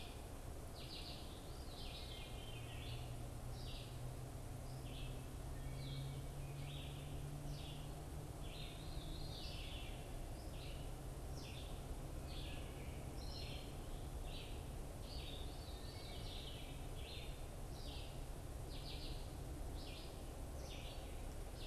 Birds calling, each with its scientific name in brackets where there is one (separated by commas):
Veery (Catharus fuscescens), Red-eyed Vireo (Vireo olivaceus)